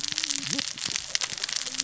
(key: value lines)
label: biophony, cascading saw
recorder: SoundTrap 600 or HydroMoth